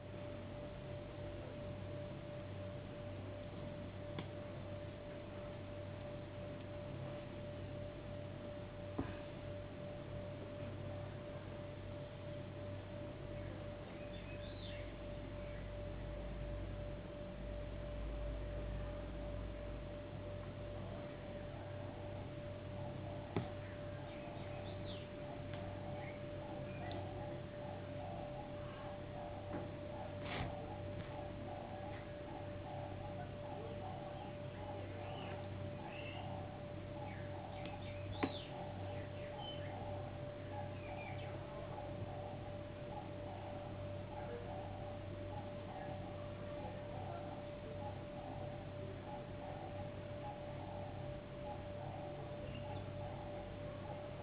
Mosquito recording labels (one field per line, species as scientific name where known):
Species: no mosquito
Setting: insect culture